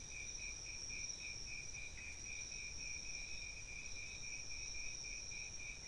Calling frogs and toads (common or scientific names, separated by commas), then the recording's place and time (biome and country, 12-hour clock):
none
Cerrado, Brazil, 2:30am